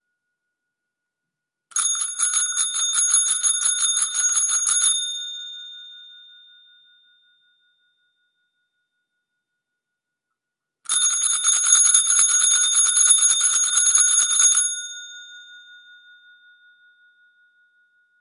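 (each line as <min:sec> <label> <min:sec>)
0:01.7 A high-pitched metal bell rings clearly. 0:06.2
0:10.8 A rapid series of high-pitched metallic bell rings repeated in quick succession. 0:15.7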